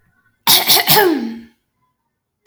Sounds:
Throat clearing